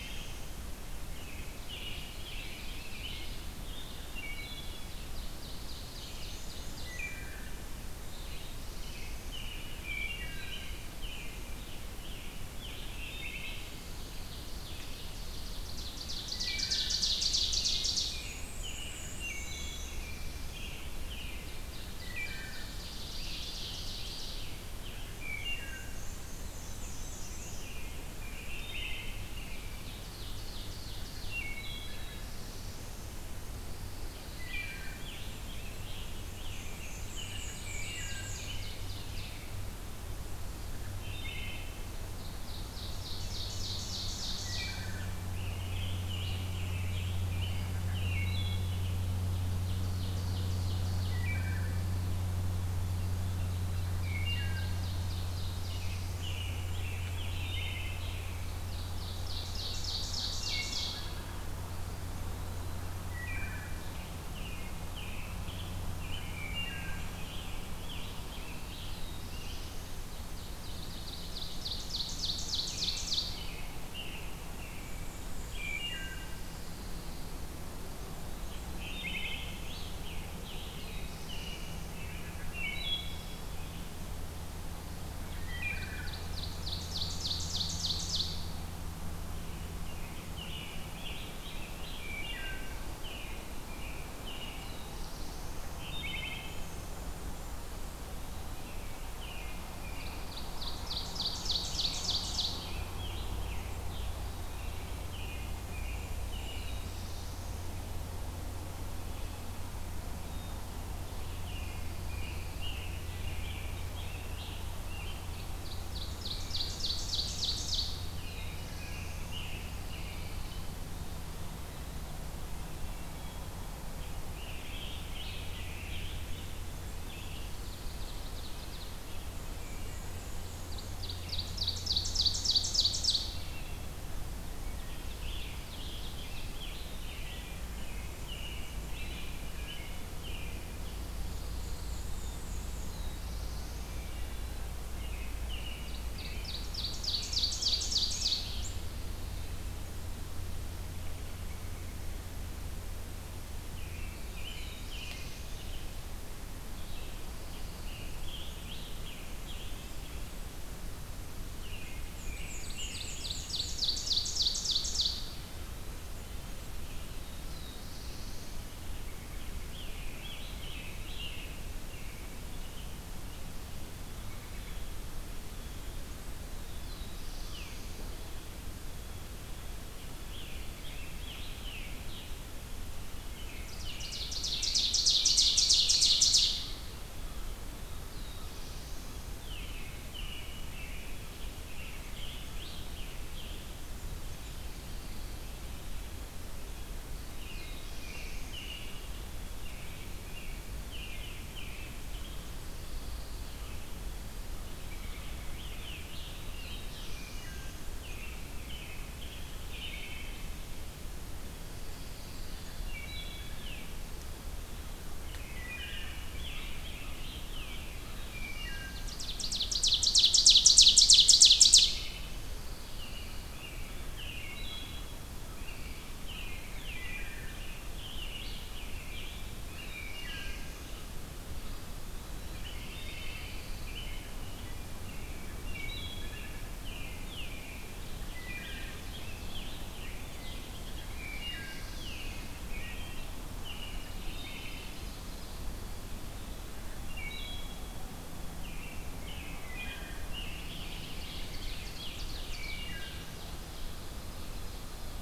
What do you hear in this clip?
Black-throated Blue Warbler, American Robin, Ovenbird, Wood Thrush, Black-and-white Warbler, Scarlet Tanager, Pine Warbler, Veery, Blackburnian Warbler, Eastern Wood-Pewee, Black-capped Chickadee, Red-eyed Vireo, Blue Jay, American Crow, Dark-eyed Junco